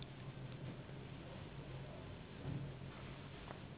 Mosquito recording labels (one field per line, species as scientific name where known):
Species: Anopheles gambiae s.s.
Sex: female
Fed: unfed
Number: one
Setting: insect culture